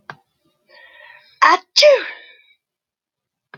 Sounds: Sneeze